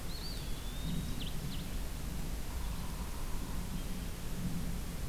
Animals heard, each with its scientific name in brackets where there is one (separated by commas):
Yellow-bellied Sapsucker (Sphyrapicus varius), Eastern Wood-Pewee (Contopus virens), Ovenbird (Seiurus aurocapilla)